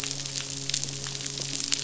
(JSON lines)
{"label": "biophony, midshipman", "recorder": "SoundTrap 500"}